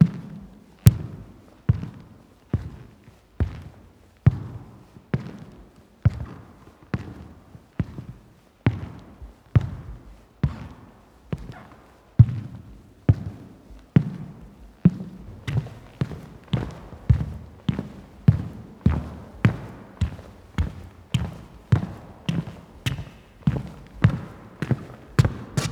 Are the footsteps slowest at the end?
no